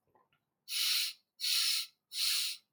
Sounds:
Sniff